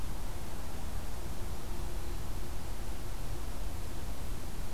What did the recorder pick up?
forest ambience